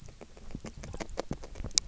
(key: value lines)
label: biophony, grazing
recorder: SoundTrap 300